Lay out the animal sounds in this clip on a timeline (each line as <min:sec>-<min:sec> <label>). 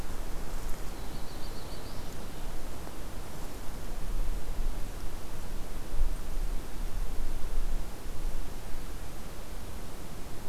0:00.8-0:02.3 Black-throated Blue Warbler (Setophaga caerulescens)